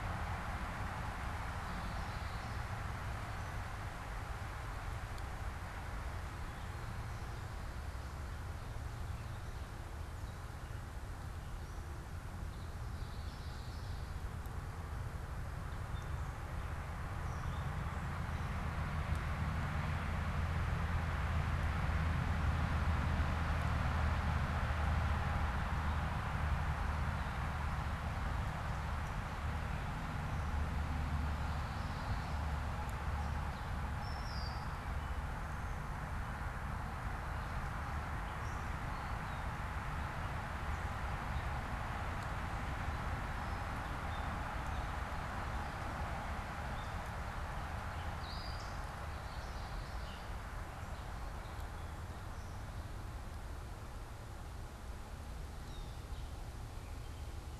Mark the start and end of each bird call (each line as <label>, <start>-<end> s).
Common Yellowthroat (Geothlypis trichas), 1.5-2.9 s
Common Yellowthroat (Geothlypis trichas), 12.9-13.9 s
Gray Catbird (Dumetella carolinensis), 15.8-57.6 s
Common Yellowthroat (Geothlypis trichas), 31.2-32.6 s